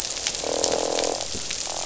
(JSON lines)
{"label": "biophony, croak", "recorder": "SoundTrap 500"}